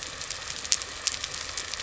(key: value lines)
label: anthrophony, boat engine
recorder: SoundTrap 300